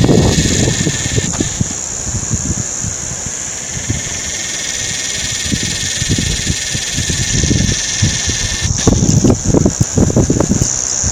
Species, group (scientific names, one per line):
Psaltoda harrisii
Cicadidae